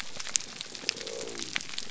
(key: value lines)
label: biophony
recorder: SoundTrap 300